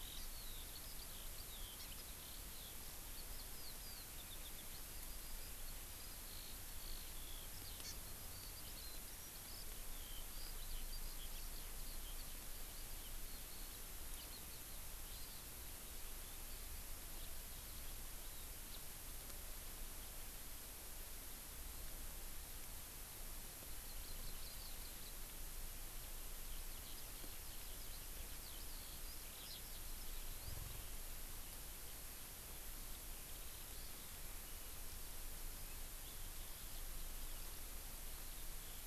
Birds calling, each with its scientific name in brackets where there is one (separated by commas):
Eurasian Skylark (Alauda arvensis), Hawaii Amakihi (Chlorodrepanis virens)